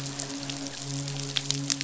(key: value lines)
label: biophony, midshipman
recorder: SoundTrap 500